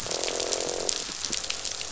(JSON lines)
{"label": "biophony, croak", "recorder": "SoundTrap 500"}